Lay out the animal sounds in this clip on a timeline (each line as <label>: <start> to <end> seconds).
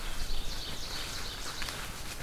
Ovenbird (Seiurus aurocapilla): 0.0 to 2.0 seconds